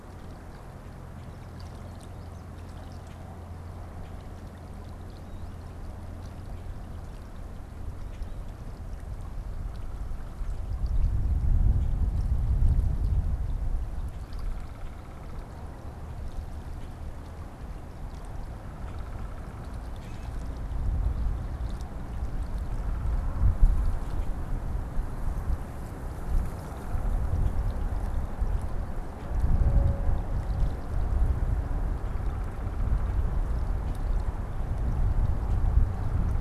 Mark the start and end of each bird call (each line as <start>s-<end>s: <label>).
8.0s-8.3s: Common Grackle (Quiscalus quiscula)
13.7s-19.9s: Downy Woodpecker (Dryobates pubescens)
16.6s-16.9s: Common Grackle (Quiscalus quiscula)
19.7s-20.4s: Common Grackle (Quiscalus quiscula)
31.8s-33.4s: Downy Woodpecker (Dryobates pubescens)